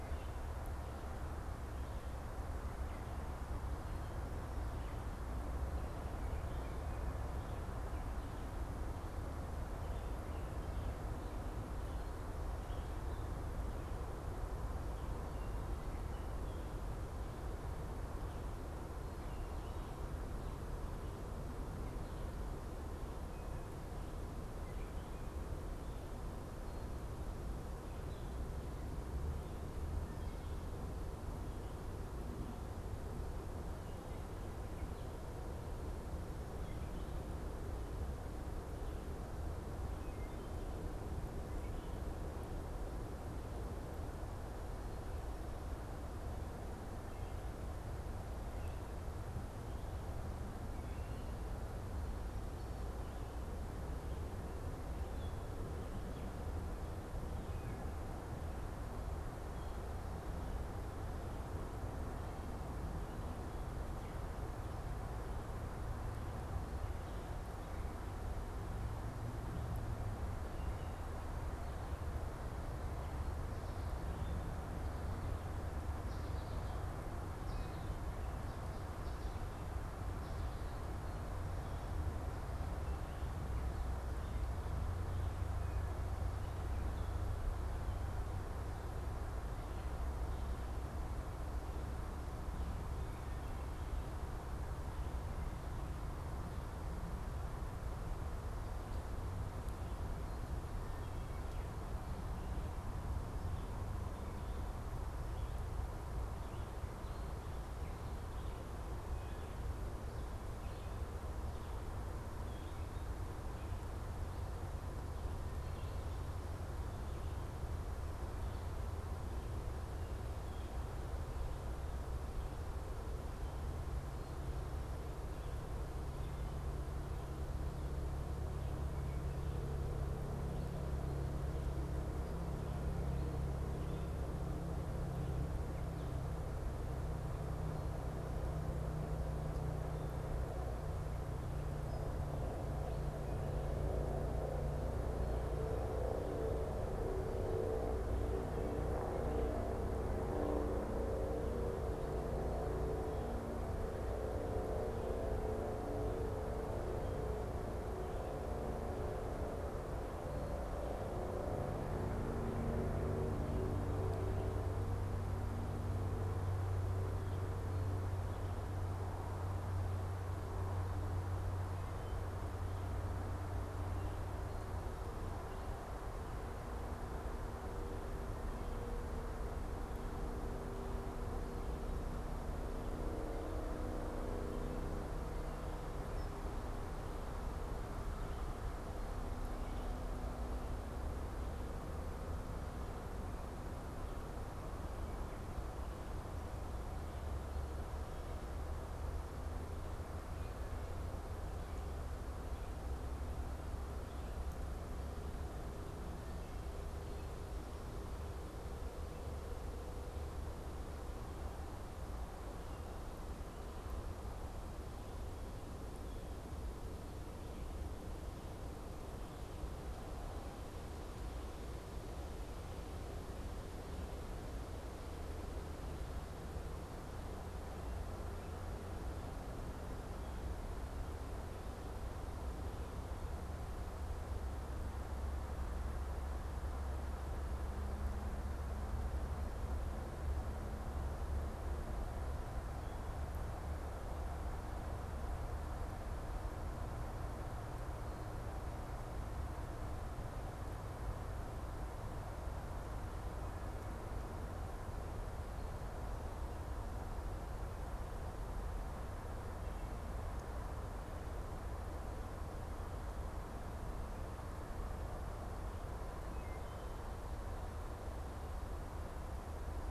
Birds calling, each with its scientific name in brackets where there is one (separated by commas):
unidentified bird, Wood Thrush (Hylocichla mustelina)